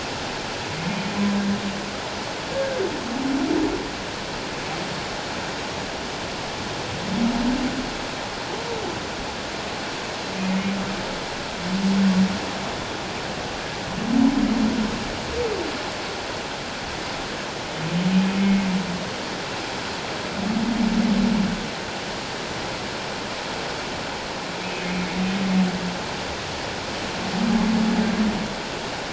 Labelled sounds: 2.5	2.8	humpback whale, 1.5 to 1.7 kHz
18.4	18.7	humpback whale, 2.1 to 2.2 kHz
24.6	25.0	humpback whale, 2.5 to 2.6 kHz

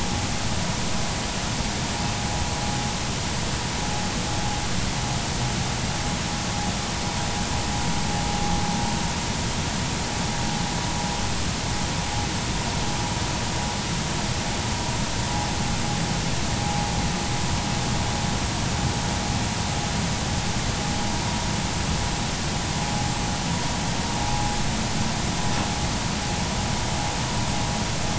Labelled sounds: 24.2	24.5	vessel noise, 0.80 to 0.96 kHz

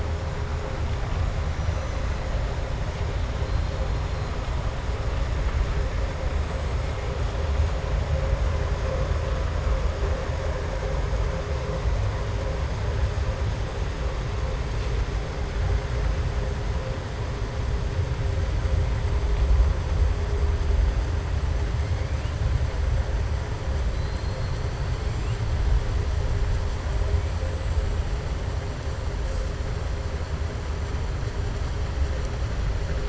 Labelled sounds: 1.5	2.1	killer whale, southern resident, 5.7 to 6.8 kHz
23.9	24.6	killer whale, southern resident, 3.6 to 4.4 kHz

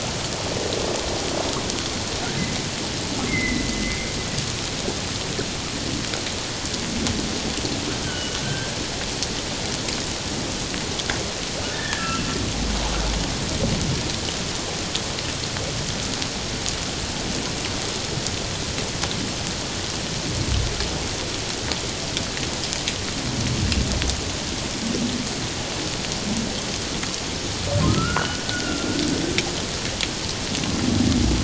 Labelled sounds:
3.3	3.6	humpback whale, 1.9 to 2.2 kHz
8.0	8.8	humpback whale, 1.5 to 3.2 kHz
11.7	12.3	humpback whale, 1.6 to 2.7 kHz
27.9	28.9	humpback whale, 1.2 to 1.7 kHz

